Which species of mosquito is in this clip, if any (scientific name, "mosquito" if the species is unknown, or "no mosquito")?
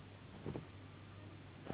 Anopheles gambiae s.s.